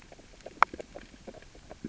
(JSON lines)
{"label": "biophony, grazing", "recorder": "SoundTrap 600 or HydroMoth"}